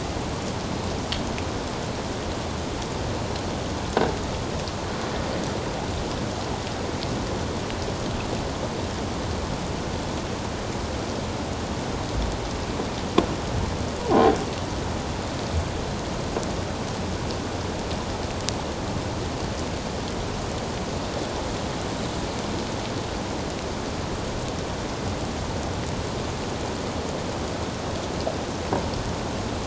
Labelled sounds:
14.1	14.4	croaking sound likely from a nearby submerged object, 0.78 to 0.84 kHz

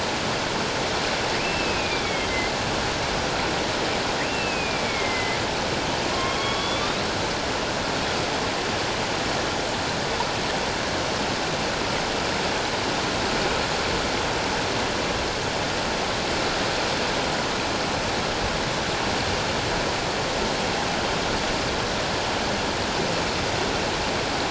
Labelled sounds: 1.4	2.4	killer whale, northern resident, A clan, AA subclan, A04 pod, 2.1 to 3.4 kHz
4.2	5.4	killer whale, northern resident, A clan, AA subclan, A04 pod, 2.0 to 2.8 kHz
6.1	7.0	killer whale, northern resident, A clan, AA subclan, A04 pod, 0.97 to 3.8 kHz

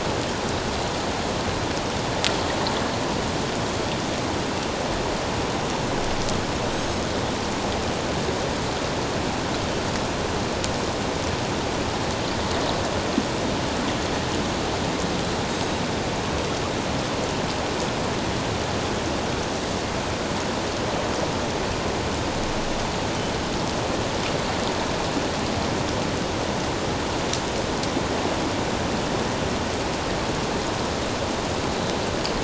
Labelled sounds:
6.7	7.0	Pacific white-sided dolphin, 6.3 to 7.8 kHz

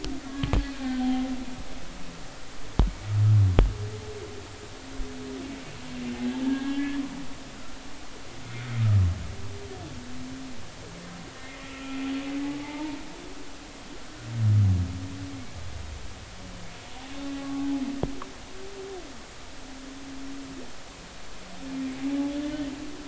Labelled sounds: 0.3	1.1	humpback whale, 1.1 to 1.6 kHz
6.4	7.0	humpback whale, 1.6 to 2.3 kHz
11.4	12.0	humpback whale, 1.3 to 1.9 kHz
12.4	13.0	humpback whale, 0.83 to 0.96 kHz
17.4	17.7	humpback whale, 1.1 to 1.2 kHz

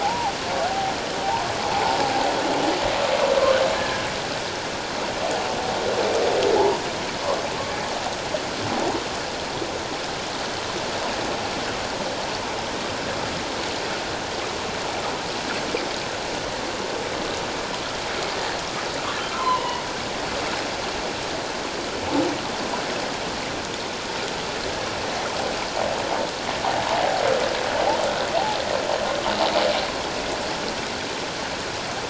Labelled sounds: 0.0	0.9	humpback whale, 0.78 to 1.0 kHz
3.7	4.0	humpback whale, 1.6 to 1.8 kHz
6.5	6.8	humpback whale, 0.78 to 1.0 kHz
19.3	19.8	humpback whale, 0.91 to 3.0 kHz

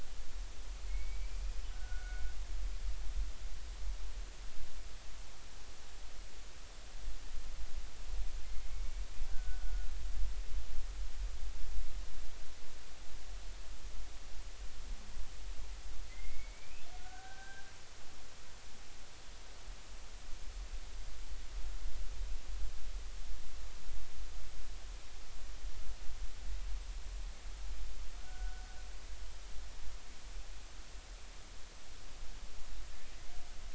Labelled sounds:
0.9	1.4	killer whale, Bigg's (transient), 2.1 to 2.4 kHz
1.7	2.2	killer whale, Bigg's (transient), 1.4 to 1.6 kHz
8.4	9.9	killer whale, Bigg's (transient), 1.4 to 2.2 kHz
16.1	17.6	killer whale, Bigg's (transient), 1.4 to 2.8 kHz
28.2	28.8	killer whale, Bigg's (transient), 1.4 to 1.6 kHz

